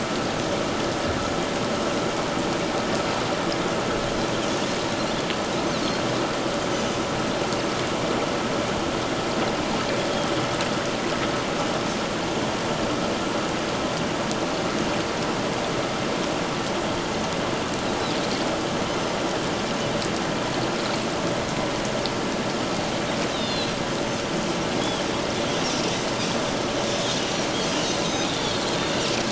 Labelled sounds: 6.7	7.0	Pacific white-sided dolphin, 5.9 to 6.2 kHz
23.3	23.7	Pacific white-sided dolphin, 2.6 to 5.2 kHz
27.6	28.6	Pacific white-sided dolphin, 3.2 to 5.0 kHz

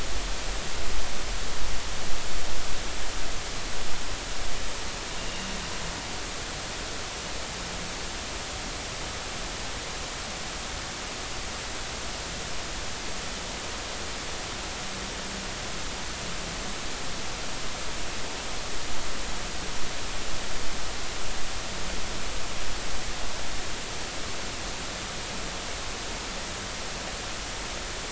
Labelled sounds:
5.2	5.5	vessel noise, 2.7 to 2.9 kHz

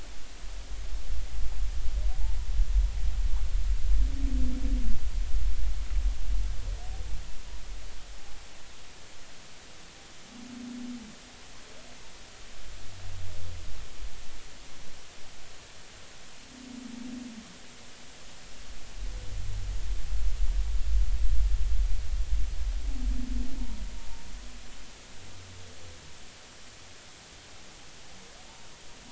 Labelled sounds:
23.6	23.8	humpback whale, 0.90 to 1.1 kHz

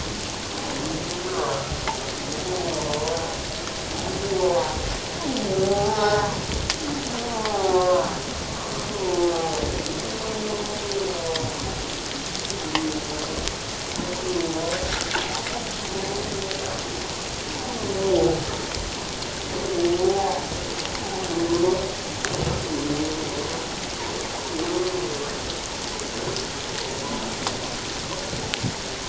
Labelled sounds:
1.3	1.6	humpback whale, 1.0 to 1.3 kHz
4.4	4.8	humpback whale, 0.78 to 1.2 kHz
5.6	6.3	humpback whale, 0.78 to 5.5 kHz
7.3	8.1	humpback whale, 0.78 to 1.2 kHz
9.3	9.6	humpback whale, 0.78 to 0.88 kHz
20.0	20.4	humpback whale, 0.78 to 1.0 kHz

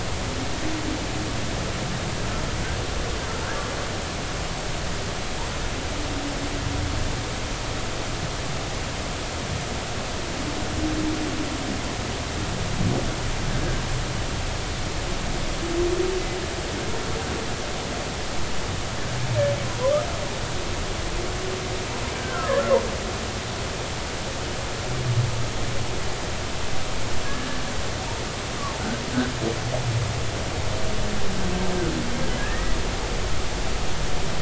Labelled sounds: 19.7	19.9	humpback whale, 0.93 to 1.1 kHz
22.1	22.6	humpback whale, 0.99 to 1.8 kHz
32.4	32.8	humpback whale, 1.6 to 2.0 kHz

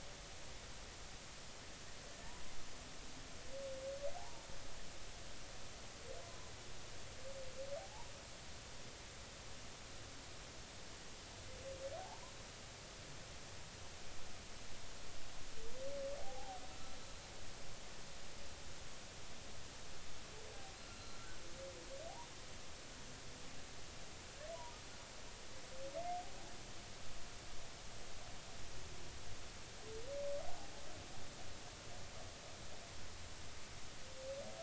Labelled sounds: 4.2	4.5	humpback whale, 0.80 to 1.0 kHz
6.2	6.5	humpback whale, 0.96 to 1.1 kHz
12.0	12.3	humpback whale, 0.80 to 1.1 kHz
16.2	17.0	humpback whale, 0.80 to 1.4 kHz
20.9	21.3	humpback whale, 1.3 to 4.2 kHz

